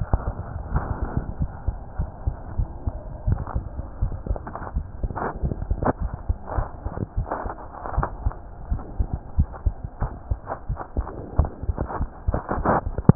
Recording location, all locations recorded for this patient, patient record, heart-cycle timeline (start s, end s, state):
aortic valve (AV)
aortic valve (AV)+pulmonary valve (PV)+tricuspid valve (TV)+mitral valve (MV)
#Age: Child
#Sex: Female
#Height: 110.0 cm
#Weight: 18.9 kg
#Pregnancy status: False
#Murmur: Absent
#Murmur locations: nan
#Most audible location: nan
#Systolic murmur timing: nan
#Systolic murmur shape: nan
#Systolic murmur grading: nan
#Systolic murmur pitch: nan
#Systolic murmur quality: nan
#Diastolic murmur timing: nan
#Diastolic murmur shape: nan
#Diastolic murmur grading: nan
#Diastolic murmur pitch: nan
#Diastolic murmur quality: nan
#Outcome: Abnormal
#Campaign: 2015 screening campaign
0.00	1.38	unannotated
1.38	1.52	S1
1.52	1.64	systole
1.64	1.76	S2
1.76	1.94	diastole
1.94	2.10	S1
2.10	2.24	systole
2.24	2.34	S2
2.34	2.55	diastole
2.55	2.70	S1
2.70	2.84	systole
2.84	2.94	S2
2.94	3.24	diastole
3.24	3.40	S1
3.40	3.53	systole
3.53	3.66	S2
3.66	3.98	diastole
3.98	4.13	S1
4.13	4.28	systole
4.28	4.42	S2
4.42	4.72	diastole
4.72	4.84	S1
4.84	5.00	systole
5.00	5.12	S2
5.12	5.40	diastole
5.40	5.56	S1
5.56	5.68	systole
5.68	5.78	S2
5.78	5.98	diastole
5.98	6.12	S1
6.12	6.26	systole
6.26	6.35	S2
6.35	6.54	diastole
6.54	6.68	S1
6.68	6.82	systole
6.82	6.92	S2
6.92	7.14	diastole
7.14	7.28	S1
7.28	7.42	systole
7.42	7.54	S2
7.54	7.94	diastole
7.94	8.10	S1
8.10	8.24	systole
8.24	8.36	S2
8.36	8.68	diastole
8.68	8.84	S1
8.84	8.96	systole
8.96	9.12	S2
9.12	9.36	diastole
9.36	9.48	S1
9.48	9.62	systole
9.62	9.74	S2
9.74	9.98	diastole
9.98	10.12	S1
10.12	10.28	systole
10.28	10.40	S2
10.40	10.66	diastole
10.66	10.78	S1
10.78	10.96	systole
10.96	11.06	S2
11.06	11.34	diastole
11.34	11.50	S1
11.50	11.64	systole
11.64	11.78	S2
11.78	11.98	diastole
11.98	12.10	S1
12.10	12.24	systole
12.24	12.42	S2
12.42	13.15	unannotated